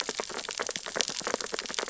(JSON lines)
{"label": "biophony, sea urchins (Echinidae)", "recorder": "SoundTrap 600 or HydroMoth"}